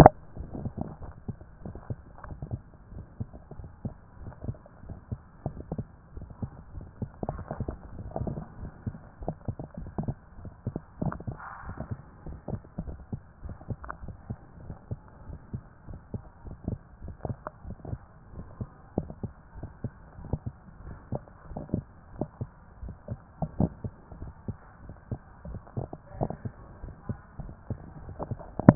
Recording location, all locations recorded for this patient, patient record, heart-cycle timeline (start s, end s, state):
tricuspid valve (TV)
aortic valve (AV)+pulmonary valve (PV)+tricuspid valve (TV)+mitral valve (MV)+mitral valve (MV)
#Age: Adolescent
#Sex: Male
#Height: 150.0 cm
#Weight: 41.1 kg
#Pregnancy status: False
#Murmur: Absent
#Murmur locations: nan
#Most audible location: nan
#Systolic murmur timing: nan
#Systolic murmur shape: nan
#Systolic murmur grading: nan
#Systolic murmur pitch: nan
#Systolic murmur quality: nan
#Diastolic murmur timing: nan
#Diastolic murmur shape: nan
#Diastolic murmur grading: nan
#Diastolic murmur pitch: nan
#Diastolic murmur quality: nan
#Outcome: Normal
#Campaign: 2014 screening campaign
0.00	1.02	unannotated
1.02	1.12	S1
1.12	1.26	systole
1.26	1.36	S2
1.36	1.64	diastole
1.64	1.76	S1
1.76	1.88	systole
1.88	1.98	S2
1.98	2.26	diastole
2.26	2.38	S1
2.38	2.52	systole
2.52	2.60	S2
2.60	2.94	diastole
2.94	3.04	S1
3.04	3.18	systole
3.18	3.28	S2
3.28	3.58	diastole
3.58	3.70	S1
3.70	3.84	systole
3.84	3.94	S2
3.94	4.20	diastole
4.20	4.32	S1
4.32	4.46	systole
4.46	4.56	S2
4.56	4.86	diastole
4.86	4.98	S1
4.98	5.10	systole
5.10	5.18	S2
5.18	5.46	diastole
5.46	5.56	S1
5.56	5.72	systole
5.72	5.84	S2
5.84	6.16	diastole
6.16	6.26	S1
6.26	6.42	systole
6.42	6.52	S2
6.52	6.78	diastole
6.78	6.86	S1
6.86	7.00	systole
7.00	7.08	S2
7.08	7.30	diastole
7.30	28.75	unannotated